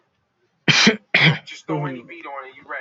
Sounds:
Sneeze